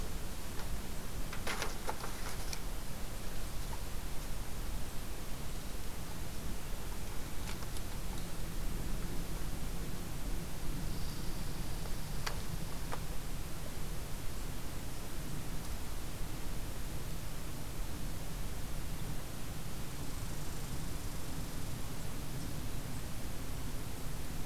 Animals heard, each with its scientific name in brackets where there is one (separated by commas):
Red Squirrel (Tamiasciurus hudsonicus)